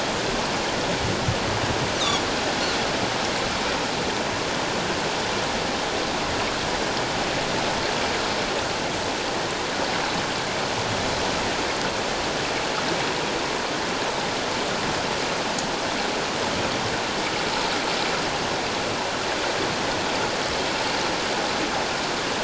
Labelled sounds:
2.0	2.2	Pacific white-sided dolphin, 3.2 to 4.2 kHz

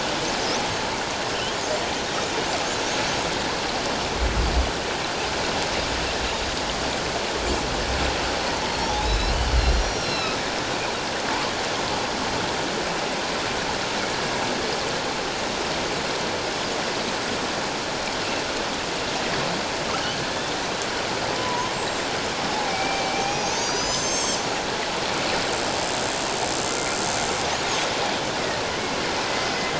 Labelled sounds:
2.0	2.3	killer whale, northern resident, 3.6 to 3.8 kHz
8.4	10.4	killer whale, northern resident, 0.81 to 5.8 kHz
21.3	22.1	killer whale, northern resident, 0.91 to 7.7 kHz
22.5	24.5	killer whale, northern resident, 0.78 to 7.8 kHz
29.3	29.7	killer whale, northern resident, 2.0 to 5.2 kHz

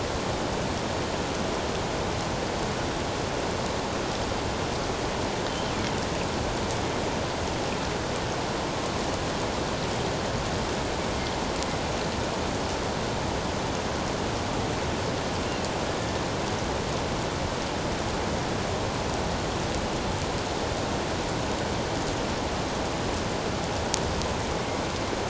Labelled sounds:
24.5	24.8	killer whale, northern resident, A clan, AA subclan, A04 pod, 2.0 to 2.2 kHz

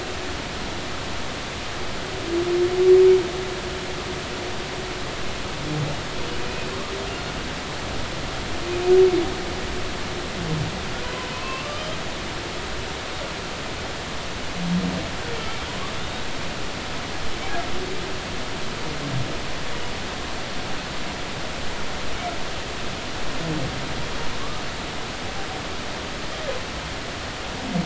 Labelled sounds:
6.4	6.7	humpback whale, 2.4 to 2.6 kHz
11.3	12.0	humpback whale, 0.96 to 3.3 kHz
16.0	16.3	humpback whale, 3.5 to 3.8 kHz

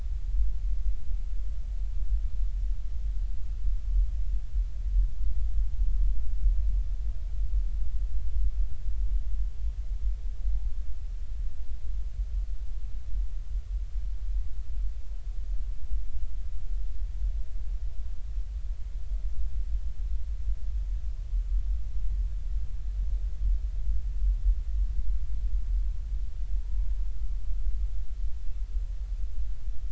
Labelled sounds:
26.6	26.9	humpback whale, 0.86 to 1.0 kHz

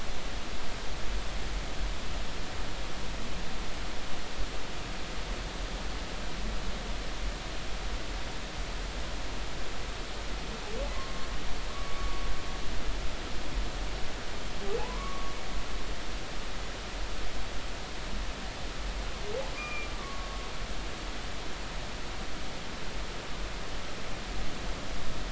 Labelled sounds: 11.7	12.2	humpback whale, 1.1 to 1.2 kHz
14.8	15.3	humpback whale, 0.80 to 1.2 kHz
19.5	20.3	humpback whale, 1.1 to 2.5 kHz

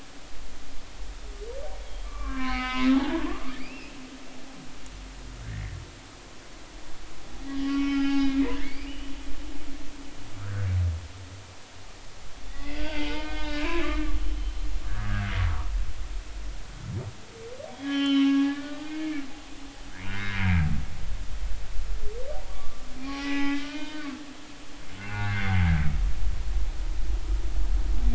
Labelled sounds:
1.8	4.0	humpback whale, 0.80 to 5.2 kHz
5.5	5.8	humpback whale, 1.7 to 2.2 kHz
7.6	9.0	humpback whale, 0.80 to 5.1 kHz
9.9	10.7	humpback whale, 1.2 to 3.0 kHz
12.5	13.9	humpback whale, 0.86 to 4.9 kHz
15.9	16.3	humpback whale, 1.2 to 1.8 kHz
17.7	19.1	humpback whale, 0.80 to 5.7 kHz
19.9	20.6	humpback whale, 1.4 to 2.4 kHz
22.5	24.2	humpback whale, 0.80 to 3.3 kHz
25.0	25.6	humpback whale, 1.4 to 2.8 kHz

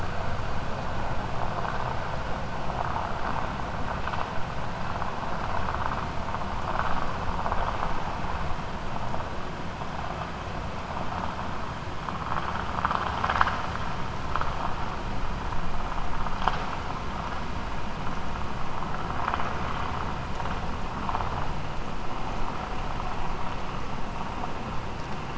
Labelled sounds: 12.7	13.6	vessel noise, 0.61 to 6.5 kHz

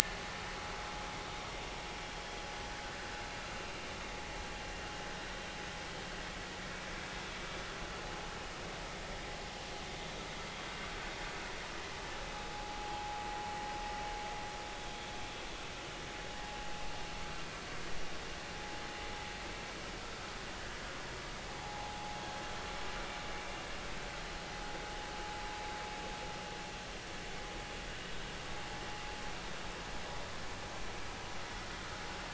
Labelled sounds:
12.5	13.2	vessel noise, 0.80 to 0.90 kHz
21.6	22.2	vessel noise, 0.80 to 1.0 kHz

